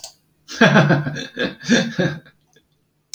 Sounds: Laughter